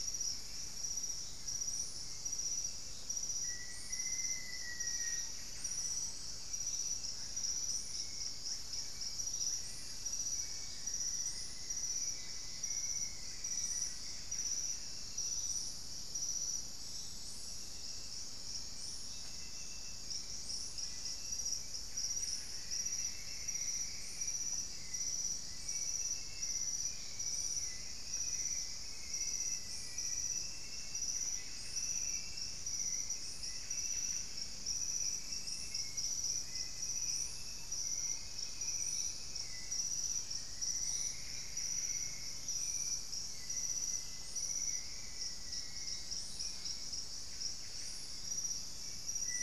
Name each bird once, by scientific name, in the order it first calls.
Formicarius analis, Cantorchilus leucotis, Campylorhynchus turdinus, Lipaugus vociferans, Turdus hauxwelli, Myrmelastes hyperythrus, unidentified bird